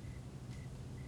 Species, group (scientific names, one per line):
Oecanthus fultoni
Orthoptera